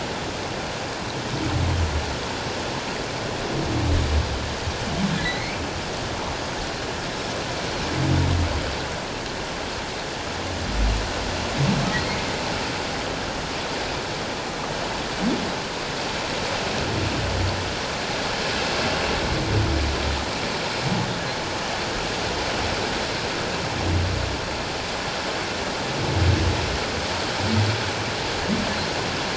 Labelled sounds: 5.2	5.6	humpback whale, 1.9 to 4.3 kHz

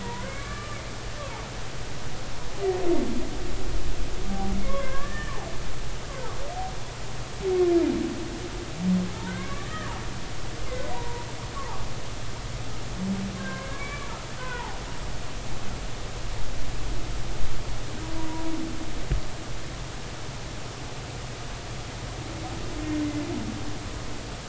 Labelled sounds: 0.0	0.8	humpback whale, 0.90 to 2.4 kHz
4.6	5.3	humpback whale, 0.99 to 1.9 kHz
9.3	10.0	humpback whale, 0.86 to 2.4 kHz
10.9	11.3	humpback whale, 0.90 to 1.0 kHz
13.4	14.8	humpback whale, 0.80 to 2.4 kHz

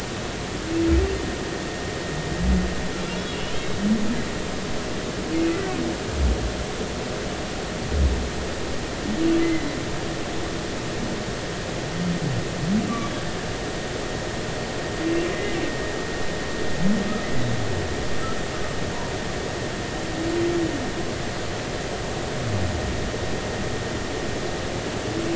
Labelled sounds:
3.3	3.5	humpback whale, 2.7 to 3.0 kHz
9.4	9.7	humpback whale, 1.9 to 2.1 kHz
15.3	15.6	humpback whale, 2.0 to 2.1 kHz

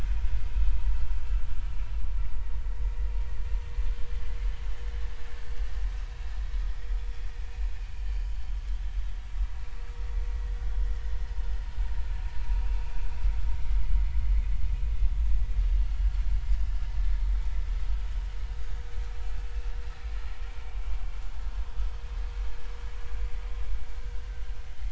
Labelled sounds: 1.6	1.9	vessel noise, 2.2 to 2.5 kHz
8.0	8.4	vessel noise, 2.9 to 3.2 kHz

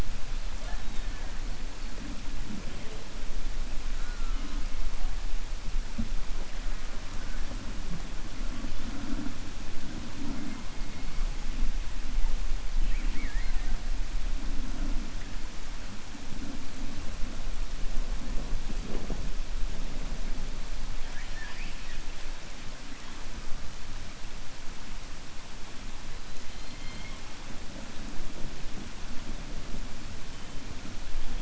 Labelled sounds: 12.8	13.7	killer whale, 1.4 to 3.0 kHz
21.0	22.0	killer whale, 0.97 to 5.0 kHz
26.4	27.2	killer whale, 2.1 to 4.4 kHz

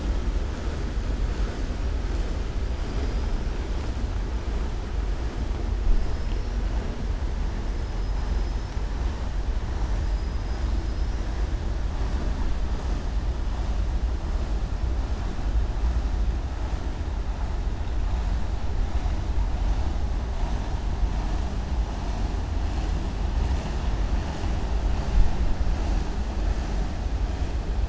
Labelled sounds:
10.0	10.6	killer whale, southern resident, 4.9 to 5.8 kHz

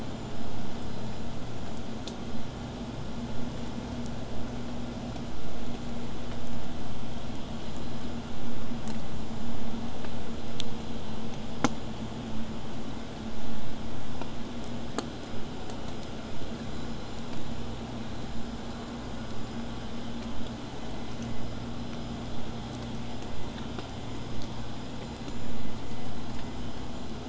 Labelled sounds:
15.3	20.3	vessel noise, 0 to 8.0 kHz

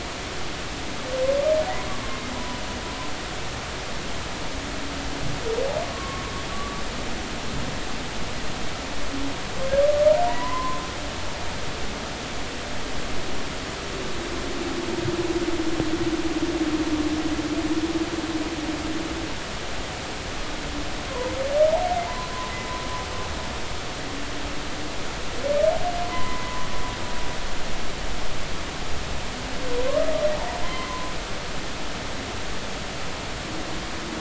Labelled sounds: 2.3	2.6	humpback whale, 0.93 to 1.0 kHz
5.8	6.2	humpback whale, 1.0 to 1.2 kHz
6.5	6.8	humpback whale, 1.1 to 1.2 kHz
10.3	10.8	humpback whale, 0.90 to 1.1 kHz
22.0	22.3	humpback whale, 0.83 to 1.1 kHz
26.1	26.7	humpback whale, 0.93 to 2.1 kHz
30.6	31.1	humpback whale, 0.96 to 2.1 kHz

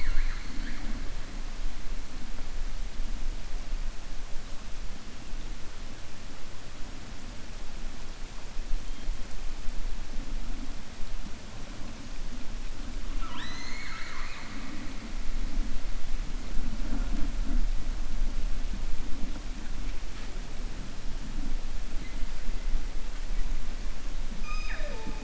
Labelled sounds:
13.1	14.8	killer whale, 0.97 to 7.5 kHz

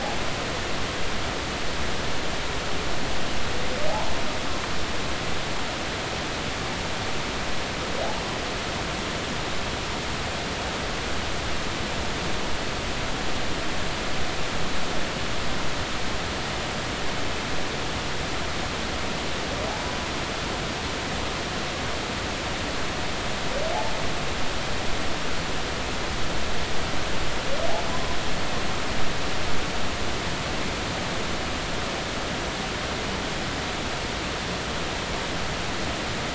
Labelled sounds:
3.9	4.1	humpback whale, 0.80 to 1.1 kHz

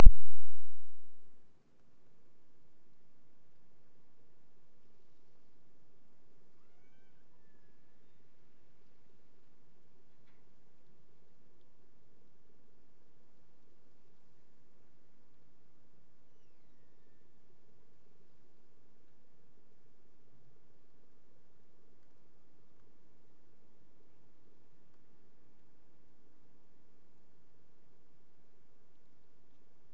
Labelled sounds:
6.4	8.4	killer whale, Bigg's (transient), Gulf of Alaska transient, 0.71 to 6.3 kHz
16.1	17.6	killer whale, Bigg's (transient), Gulf of Alaska transient, 1.6 to 6.1 kHz

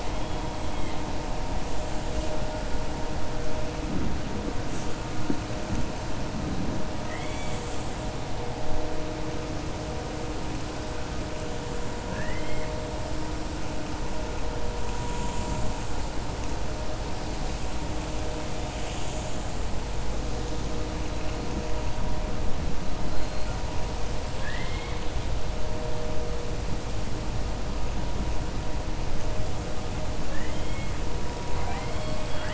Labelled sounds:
7.0	7.6	killer whale, 1.3 to 3.8 kHz
12.0	12.7	killer whale, 1.1 to 3.2 kHz
24.3	25.0	killer whale, 1.1 to 4.5 kHz
30.2	30.9	killer whale, 1.1 to 3.6 kHz

